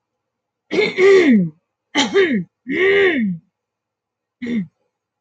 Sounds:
Throat clearing